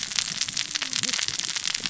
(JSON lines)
{"label": "biophony, cascading saw", "recorder": "SoundTrap 600 or HydroMoth"}